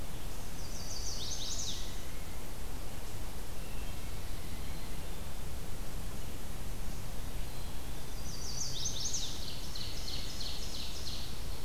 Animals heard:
Ovenbird (Seiurus aurocapilla)
Black-capped Chickadee (Poecile atricapillus)
Chestnut-sided Warbler (Setophaga pensylvanica)

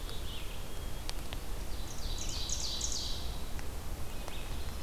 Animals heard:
Ovenbird (Seiurus aurocapilla)
Red-eyed Vireo (Vireo olivaceus)
Black-capped Chickadee (Poecile atricapillus)

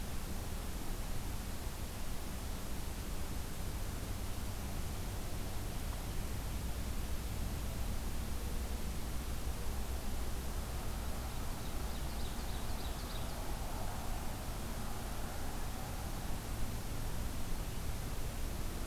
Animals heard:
Ovenbird (Seiurus aurocapilla)

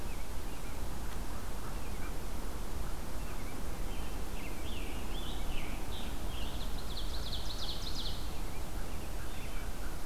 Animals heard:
Scarlet Tanager (Piranga olivacea)
American Robin (Turdus migratorius)
Wood Thrush (Hylocichla mustelina)
Ovenbird (Seiurus aurocapilla)

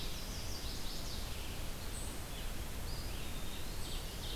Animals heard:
Ovenbird (Seiurus aurocapilla)
unidentified call
Chestnut-sided Warbler (Setophaga pensylvanica)
Eastern Wood-Pewee (Contopus virens)
Red-eyed Vireo (Vireo olivaceus)

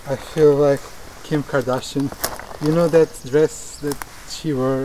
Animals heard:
Northern Parula (Setophaga americana)

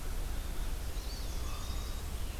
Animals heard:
Common Raven (Corvus corax)
Eastern Wood-Pewee (Contopus virens)
Northern Parula (Setophaga americana)

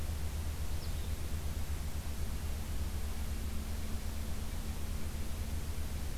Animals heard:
Blue-headed Vireo (Vireo solitarius)

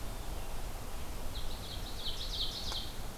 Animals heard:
Ovenbird (Seiurus aurocapilla)

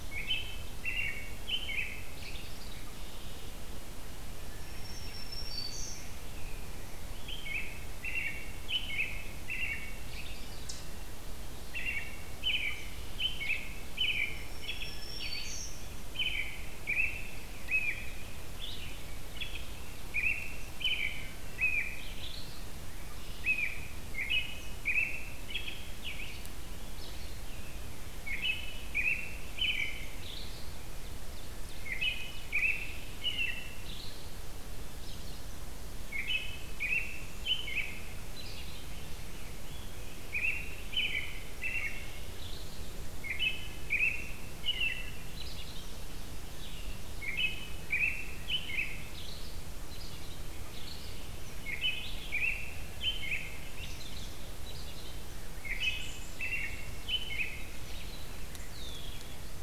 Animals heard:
Black-throated Green Warbler (Setophaga virens)
Red-winged Blackbird (Agelaius phoeniceus)
American Robin (Turdus migratorius)

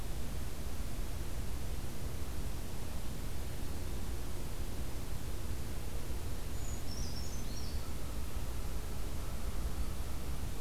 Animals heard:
American Crow (Corvus brachyrhynchos)
Brown Creeper (Certhia americana)

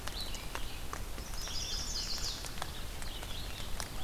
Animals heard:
Chestnut-sided Warbler (Setophaga pensylvanica)
Red-eyed Vireo (Vireo olivaceus)

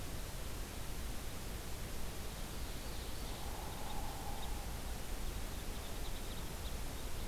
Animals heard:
Hairy Woodpecker (Dryobates villosus)
Ovenbird (Seiurus aurocapilla)
Red Crossbill (Loxia curvirostra)

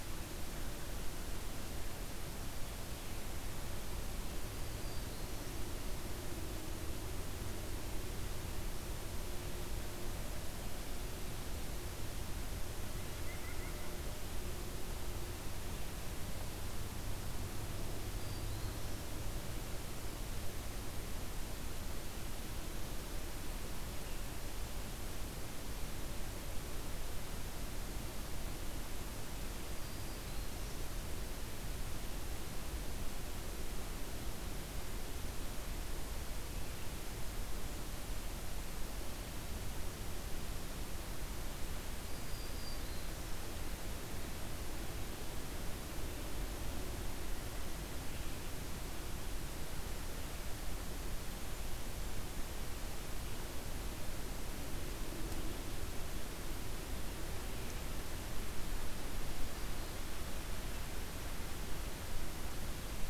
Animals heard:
Black-throated Green Warbler (Setophaga virens)
White-breasted Nuthatch (Sitta carolinensis)

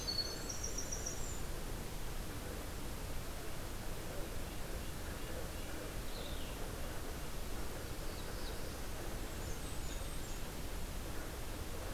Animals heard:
Red-breasted Nuthatch (Sitta canadensis)
Winter Wren (Troglodytes hiemalis)
Red-eyed Vireo (Vireo olivaceus)
Black-throated Blue Warbler (Setophaga caerulescens)
Blackburnian Warbler (Setophaga fusca)

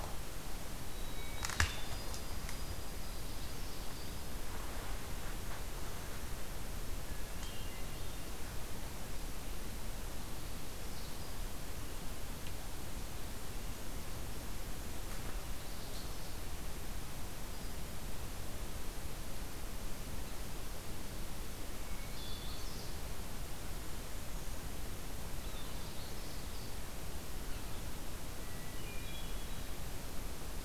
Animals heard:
Magnolia Warbler (Setophaga magnolia)
Hermit Thrush (Catharus guttatus)
White-throated Sparrow (Zonotrichia albicollis)

